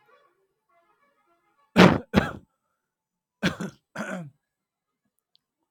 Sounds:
Cough